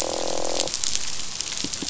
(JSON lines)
{"label": "biophony, croak", "recorder": "SoundTrap 500"}